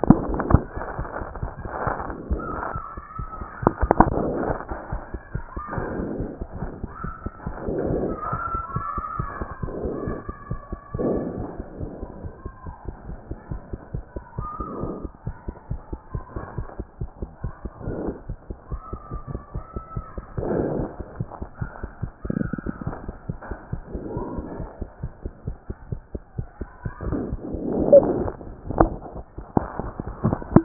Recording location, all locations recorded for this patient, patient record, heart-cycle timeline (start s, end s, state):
mitral valve (MV)
aortic valve (AV)+pulmonary valve (PV)+tricuspid valve (TV)+mitral valve (MV)
#Age: Child
#Sex: Male
#Height: 109.0 cm
#Weight: 22.9 kg
#Pregnancy status: False
#Murmur: Absent
#Murmur locations: nan
#Most audible location: nan
#Systolic murmur timing: nan
#Systolic murmur shape: nan
#Systolic murmur grading: nan
#Systolic murmur pitch: nan
#Systolic murmur quality: nan
#Diastolic murmur timing: nan
#Diastolic murmur shape: nan
#Diastolic murmur grading: nan
#Diastolic murmur pitch: nan
#Diastolic murmur quality: nan
#Outcome: Abnormal
#Campaign: 2014 screening campaign
0.00	11.67	unannotated
11.67	11.80	diastole
11.80	11.90	S1
11.90	12.02	systole
12.02	12.10	S2
12.10	12.26	diastole
12.26	12.32	S1
12.32	12.46	systole
12.46	12.52	S2
12.52	12.66	diastole
12.66	12.74	S1
12.74	12.86	systole
12.86	12.94	S2
12.94	13.08	diastole
13.08	13.18	S1
13.18	13.28	systole
13.28	13.36	S2
13.36	13.50	diastole
13.50	13.60	S1
13.60	13.70	systole
13.70	13.78	S2
13.78	13.94	diastole
13.94	14.04	S1
14.04	14.14	systole
14.14	14.24	S2
14.24	14.38	diastole
14.38	14.48	S1
14.48	14.58	systole
14.58	14.66	S2
14.66	14.82	diastole
14.82	14.93	S1
14.93	15.02	systole
15.02	15.12	S2
15.12	15.26	diastole
15.26	15.34	S1
15.34	15.46	systole
15.46	15.54	S2
15.54	15.70	diastole
15.70	15.80	S1
15.80	15.90	systole
15.90	16.00	S2
16.00	16.14	diastole
16.14	16.24	S1
16.24	16.34	systole
16.34	16.44	S2
16.44	16.58	diastole
16.58	16.66	S1
16.66	16.78	systole
16.78	16.86	S2
16.86	17.02	diastole
17.02	17.10	S1
17.10	17.20	systole
17.20	17.30	S2
17.30	17.44	diastole
17.44	17.52	S1
17.52	17.64	systole
17.64	17.71	S2
17.71	17.86	diastole
17.86	17.98	S1
17.98	18.07	systole
18.07	18.16	S2
18.16	18.30	diastole
18.30	18.38	S1
18.38	18.48	systole
18.48	18.56	S2
18.56	18.72	diastole
18.72	18.80	S1
18.80	18.92	systole
18.92	19.00	S2
19.00	19.14	diastole
19.14	19.22	S1
19.22	19.34	systole
19.34	19.42	S2
19.42	19.56	diastole
19.56	19.64	S1
19.64	19.76	systole
19.76	19.84	S2
19.84	19.96	diastole
19.96	30.64	unannotated